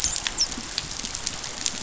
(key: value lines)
label: biophony, dolphin
recorder: SoundTrap 500